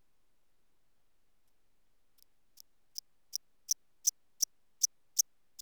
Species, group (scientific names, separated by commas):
Eupholidoptera smyrnensis, Orthoptera